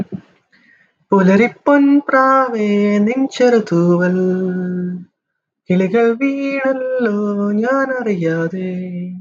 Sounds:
Sigh